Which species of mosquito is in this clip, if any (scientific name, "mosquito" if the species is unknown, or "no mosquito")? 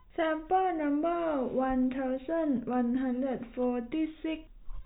no mosquito